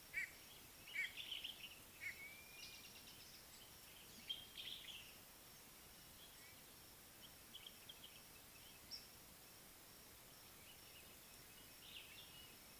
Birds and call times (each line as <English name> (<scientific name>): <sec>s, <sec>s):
Common Bulbul (Pycnonotus barbatus): 1.4s, 4.7s, 7.6s
Violet-backed Starling (Cinnyricinclus leucogaster): 2.4s
Little Bee-eater (Merops pusillus): 8.9s